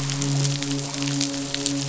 {"label": "biophony, midshipman", "recorder": "SoundTrap 500"}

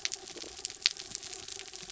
{"label": "anthrophony, mechanical", "recorder": "SoundTrap 300"}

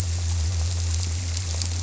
{"label": "biophony", "recorder": "SoundTrap 300"}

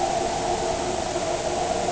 {"label": "anthrophony, boat engine", "recorder": "HydroMoth"}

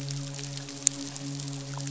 {"label": "biophony, midshipman", "recorder": "SoundTrap 500"}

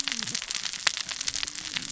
{"label": "biophony, cascading saw", "recorder": "SoundTrap 600 or HydroMoth"}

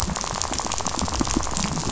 {"label": "biophony, rattle", "recorder": "SoundTrap 500"}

